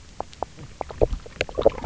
{"label": "biophony, knock croak", "recorder": "SoundTrap 300"}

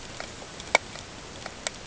{"label": "ambient", "recorder": "HydroMoth"}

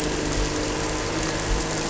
{"label": "anthrophony, boat engine", "recorder": "SoundTrap 300"}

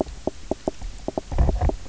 {"label": "biophony, knock croak", "recorder": "SoundTrap 300"}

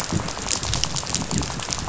{"label": "biophony, rattle", "recorder": "SoundTrap 500"}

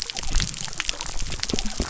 {"label": "biophony", "recorder": "SoundTrap 300"}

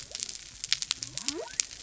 {"label": "biophony", "recorder": "SoundTrap 300"}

